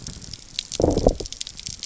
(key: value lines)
label: biophony, low growl
recorder: SoundTrap 300